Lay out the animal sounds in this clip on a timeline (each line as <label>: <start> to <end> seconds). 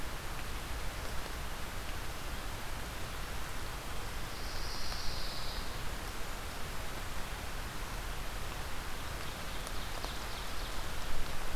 Pine Warbler (Setophaga pinus): 4.2 to 5.8 seconds
Ovenbird (Seiurus aurocapilla): 8.7 to 10.8 seconds